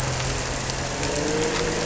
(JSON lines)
{"label": "anthrophony, boat engine", "recorder": "SoundTrap 300"}